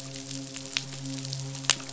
{"label": "biophony, midshipman", "recorder": "SoundTrap 500"}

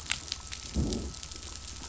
{"label": "biophony, growl", "recorder": "SoundTrap 500"}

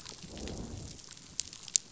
{"label": "biophony, growl", "recorder": "SoundTrap 500"}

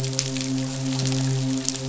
{"label": "biophony, midshipman", "recorder": "SoundTrap 500"}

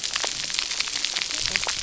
{"label": "biophony, cascading saw", "recorder": "SoundTrap 300"}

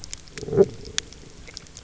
{"label": "biophony", "recorder": "SoundTrap 300"}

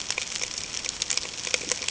{"label": "ambient", "recorder": "HydroMoth"}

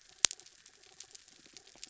{"label": "anthrophony, mechanical", "recorder": "SoundTrap 300"}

